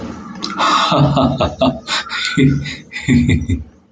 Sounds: Laughter